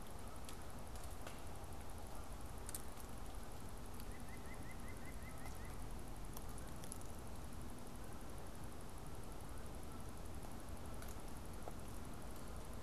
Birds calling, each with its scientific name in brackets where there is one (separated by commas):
White-breasted Nuthatch (Sitta carolinensis), Canada Goose (Branta canadensis)